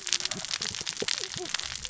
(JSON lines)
{"label": "biophony, cascading saw", "recorder": "SoundTrap 600 or HydroMoth"}